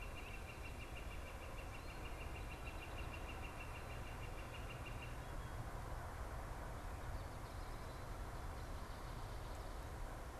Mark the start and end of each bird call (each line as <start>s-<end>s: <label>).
0.0s-1.0s: Great Crested Flycatcher (Myiarchus crinitus)
0.0s-6.1s: Northern Flicker (Colaptes auratus)